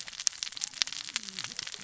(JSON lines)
{"label": "biophony, cascading saw", "recorder": "SoundTrap 600 or HydroMoth"}